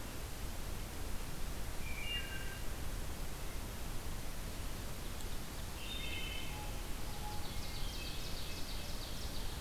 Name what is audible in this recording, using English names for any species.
Wood Thrush, Ovenbird, Blue Jay, Hermit Thrush